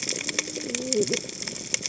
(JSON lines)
{"label": "biophony, cascading saw", "recorder": "HydroMoth"}